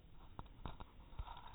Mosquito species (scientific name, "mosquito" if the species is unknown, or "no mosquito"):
no mosquito